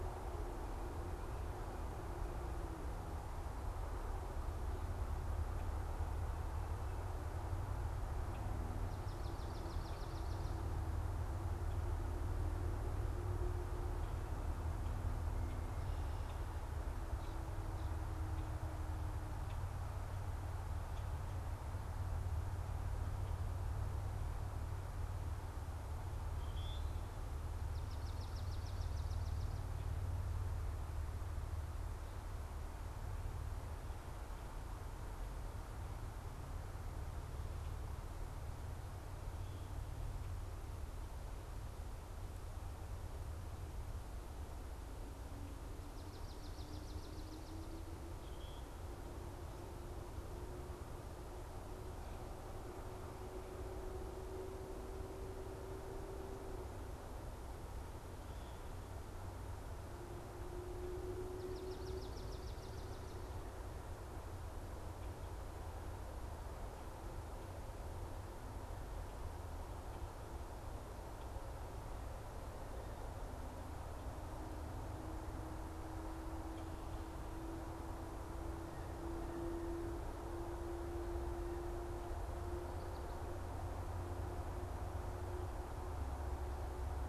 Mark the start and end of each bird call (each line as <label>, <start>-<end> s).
Swamp Sparrow (Melospiza georgiana), 9.0-10.6 s
unidentified bird, 26.3-26.9 s
Swamp Sparrow (Melospiza georgiana), 27.7-29.5 s
Swamp Sparrow (Melospiza georgiana), 45.6-47.6 s
unidentified bird, 48.0-48.7 s
Swamp Sparrow (Melospiza georgiana), 61.3-63.1 s